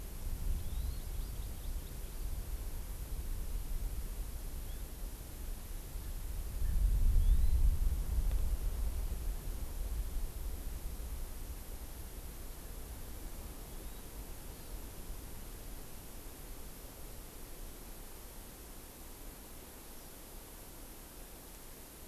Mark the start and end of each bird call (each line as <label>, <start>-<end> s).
Hawaii Amakihi (Chlorodrepanis virens), 0.5-2.4 s
Erckel's Francolin (Pternistis erckelii), 6.0-6.9 s
Hawaii Amakihi (Chlorodrepanis virens), 7.2-7.7 s
Hawaii Amakihi (Chlorodrepanis virens), 13.7-14.1 s
Hawaii Amakihi (Chlorodrepanis virens), 14.4-14.9 s